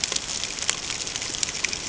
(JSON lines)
{"label": "ambient", "recorder": "HydroMoth"}